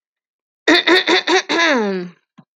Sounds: Throat clearing